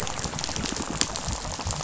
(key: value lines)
label: biophony, rattle
recorder: SoundTrap 500